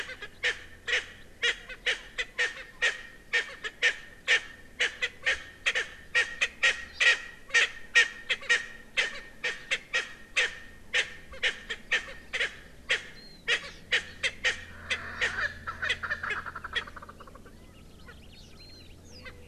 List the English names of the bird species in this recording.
Erckel's Francolin, Hawaii Amakihi, Warbling White-eye